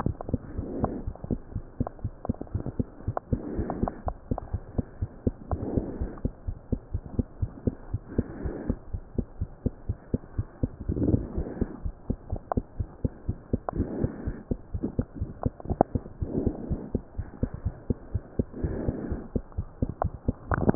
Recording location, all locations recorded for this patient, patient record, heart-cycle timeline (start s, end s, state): pulmonary valve (PV)
aortic valve (AV)+pulmonary valve (PV)+tricuspid valve (TV)+mitral valve (MV)
#Age: Child
#Sex: Male
#Height: 90.0 cm
#Weight: 13.9 kg
#Pregnancy status: False
#Murmur: Absent
#Murmur locations: nan
#Most audible location: nan
#Systolic murmur timing: nan
#Systolic murmur shape: nan
#Systolic murmur grading: nan
#Systolic murmur pitch: nan
#Systolic murmur quality: nan
#Diastolic murmur timing: nan
#Diastolic murmur shape: nan
#Diastolic murmur grading: nan
#Diastolic murmur pitch: nan
#Diastolic murmur quality: nan
#Outcome: Normal
#Campaign: 2015 screening campaign
0.00	4.84	unannotated
4.84	4.98	diastole
4.98	5.08	S1
5.08	5.22	systole
5.22	5.34	S2
5.34	5.50	diastole
5.50	5.64	S1
5.64	5.72	systole
5.72	5.84	S2
5.84	5.98	diastole
5.98	6.12	S1
6.12	6.22	systole
6.22	6.32	S2
6.32	6.46	diastole
6.46	6.56	S1
6.56	6.68	systole
6.68	6.80	S2
6.80	6.92	diastole
6.92	7.02	S1
7.02	7.12	systole
7.12	7.26	S2
7.26	7.40	diastole
7.40	7.50	S1
7.50	7.64	systole
7.64	7.74	S2
7.74	7.90	diastole
7.90	8.02	S1
8.02	8.12	systole
8.12	8.26	S2
8.26	8.42	diastole
8.42	8.56	S1
8.56	8.66	systole
8.66	8.80	S2
8.80	8.92	diastole
8.92	9.02	S1
9.02	9.16	systole
9.16	9.26	S2
9.26	9.38	diastole
9.38	9.48	S1
9.48	9.62	systole
9.62	9.72	S2
9.72	9.86	diastole
9.86	9.96	S1
9.96	10.10	systole
10.10	10.22	S2
10.22	10.36	diastole
10.36	10.46	S1
10.46	10.60	systole
10.60	10.74	S2
10.74	10.86	diastole
10.86	10.96	S1
10.96	11.07	systole
11.07	11.19	S2
11.19	11.34	diastole
11.34	11.48	S1
11.48	11.58	systole
11.58	11.70	S2
11.70	11.84	diastole
11.84	11.94	S1
11.94	12.06	systole
12.06	12.18	S2
12.18	12.30	diastole
12.30	12.40	S1
12.40	12.52	systole
12.52	12.64	S2
12.64	12.78	diastole
12.78	12.88	S1
12.88	13.00	systole
13.00	13.12	S2
13.12	13.26	diastole
13.26	13.36	S1
13.36	13.52	systole
13.52	13.62	S2
13.62	13.76	diastole
13.76	13.90	S1
13.90	13.98	systole
13.98	14.12	S2
14.12	14.24	diastole
14.24	14.38	S1
14.38	14.50	systole
14.50	14.58	S2
14.58	14.72	diastole
14.72	14.82	S1
14.82	14.96	systole
14.96	15.06	S2
15.06	15.20	diastole
15.20	15.30	S1
15.30	15.40	systole
15.40	15.54	S2
15.54	15.68	diastole
15.68	15.78	S1
15.78	15.94	systole
15.94	16.04	S2
16.04	16.20	diastole
16.20	16.30	S1
16.30	16.38	systole
16.38	16.54	S2
16.54	16.68	diastole
16.68	16.82	S1
16.82	16.92	systole
16.92	17.02	S2
17.02	17.16	diastole
17.16	17.26	S1
17.26	17.38	systole
17.38	17.50	S2
17.50	17.64	diastole
17.64	17.78	S1
17.78	17.86	systole
17.86	17.98	S2
17.98	18.12	diastole
18.12	18.22	S1
18.22	18.34	systole
18.34	18.48	S2
18.48	18.62	diastole
18.62	18.78	S1
18.78	18.86	systole
18.86	18.96	S2
18.96	19.10	diastole
19.10	19.24	S1
19.24	19.34	systole
19.34	19.42	S2
19.42	19.56	diastole
19.56	19.66	S1
19.66	19.78	systole
19.78	19.90	S2
19.90	20.02	diastole
20.02	20.12	S1
20.12	20.24	systole
20.24	20.36	S2
20.36	20.50	diastole
20.50	20.75	unannotated